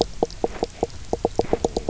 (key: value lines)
label: biophony, knock croak
recorder: SoundTrap 300